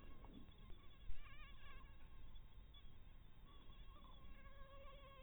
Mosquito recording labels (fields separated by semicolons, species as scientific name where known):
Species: Anopheles harrisoni; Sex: female; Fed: blood-fed; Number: one; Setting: cup